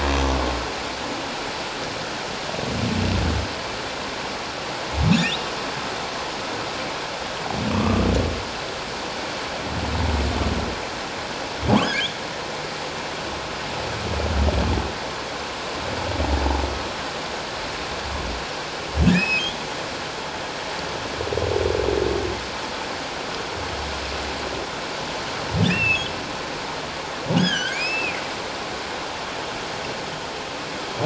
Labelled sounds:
7.7	8.1	humpback whale, 1.1 to 1.4 kHz
11.8	12.1	humpback whale, 1.5 to 1.8 kHz
19.1	19.5	humpback whale, 2.3 to 5.2 kHz
25.7	26.1	humpback whale, 2.4 to 2.8 kHz
27.4	28.2	humpback whale, 1.4 to 5.3 kHz

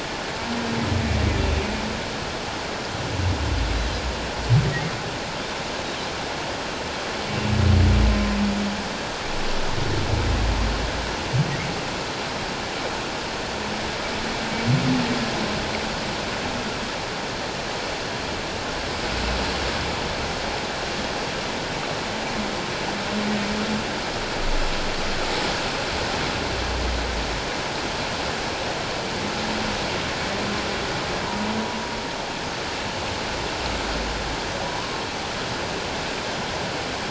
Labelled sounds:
31.2	31.5	humpback whale, 0.88 to 1.1 kHz
34.6	35.0	humpback whale, 0.94 to 1.1 kHz

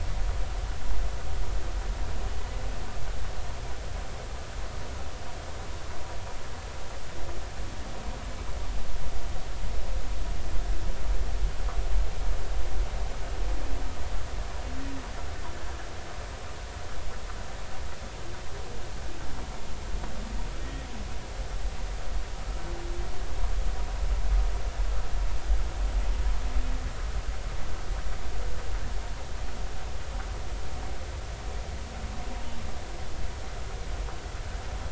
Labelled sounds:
20.6	20.9	humpback whale, 1.8 to 2.0 kHz

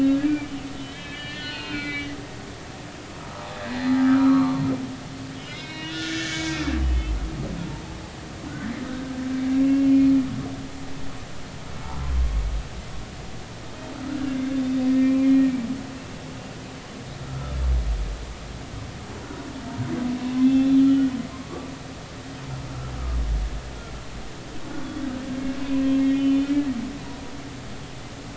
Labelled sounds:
0.2	2.2	humpback whale, 1.4 to 4.8 kHz
3.7	4.6	humpback whale, 0.93 to 4.2 kHz
5.2	6.6	humpback whale, 1.4 to 5.4 kHz
8.9	9.9	humpback whale, 1.4 to 2.8 kHz
14.2	15.5	humpback whale, 1.5 to 2.4 kHz
17.2	17.6	humpback whale, 1.2 to 1.4 kHz
20.3	21.7	humpback whale, 0.99 to 3.6 kHz
25.6	26.6	humpback whale, 0.96 to 3.2 kHz

